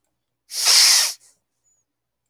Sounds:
Sniff